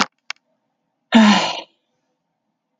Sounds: Sigh